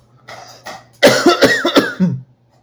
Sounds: Cough